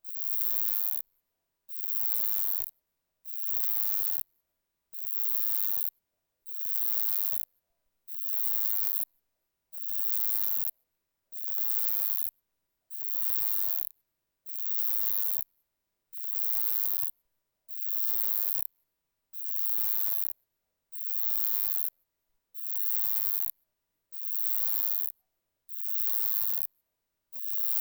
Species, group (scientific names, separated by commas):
Uromenus elegans, Orthoptera